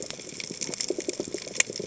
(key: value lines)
label: biophony, chatter
recorder: HydroMoth